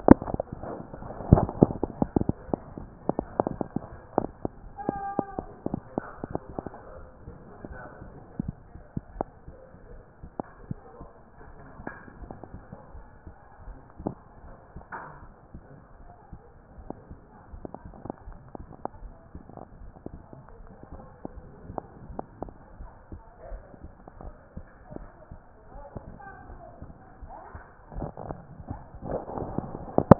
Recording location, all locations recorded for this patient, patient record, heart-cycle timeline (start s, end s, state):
aortic valve (AV)
aortic valve (AV)+pulmonary valve (PV)+tricuspid valve (TV)+mitral valve (MV)
#Age: nan
#Sex: Female
#Height: nan
#Weight: nan
#Pregnancy status: True
#Murmur: Absent
#Murmur locations: nan
#Most audible location: nan
#Systolic murmur timing: nan
#Systolic murmur shape: nan
#Systolic murmur grading: nan
#Systolic murmur pitch: nan
#Systolic murmur quality: nan
#Diastolic murmur timing: nan
#Diastolic murmur shape: nan
#Diastolic murmur grading: nan
#Diastolic murmur pitch: nan
#Diastolic murmur quality: nan
#Outcome: Normal
#Campaign: 2014 screening campaign
0.00	16.59	unannotated
16.59	16.78	diastole
16.78	16.90	S1
16.90	17.08	systole
17.08	17.18	S2
17.18	17.52	diastole
17.52	17.64	S1
17.64	17.84	systole
17.84	17.94	S2
17.94	18.26	diastole
18.26	18.38	S1
18.38	18.58	systole
18.58	18.68	S2
18.68	19.02	diastole
19.02	19.14	S1
19.14	19.34	systole
19.34	19.44	S2
19.44	19.80	diastole
19.80	19.92	S1
19.92	20.10	systole
20.10	20.20	S2
20.20	20.60	diastole
20.60	20.74	S1
20.74	20.92	systole
20.92	21.02	S2
21.02	21.34	diastole
21.34	21.46	S1
21.46	21.66	systole
21.66	21.76	S2
21.76	22.10	diastole
22.10	22.22	S1
22.22	22.40	systole
22.40	22.52	S2
22.52	22.80	diastole
22.80	22.90	S1
22.90	23.10	systole
23.10	23.22	S2
23.22	23.50	diastole
23.50	23.62	S1
23.62	23.82	systole
23.82	23.90	S2
23.90	24.24	diastole
24.24	24.34	S1
24.34	24.56	systole
24.56	24.66	S2
24.66	24.94	diastole
24.94	25.08	S1
25.08	25.30	systole
25.30	25.40	S2
25.40	25.74	diastole
25.74	25.84	S1
25.84	26.04	systole
26.04	26.14	S2
26.14	26.48	diastole
26.48	26.60	S1
26.60	26.82	systole
26.82	26.92	S2
26.92	27.22	diastole
27.22	27.32	S1
27.32	27.52	systole
27.52	30.19	unannotated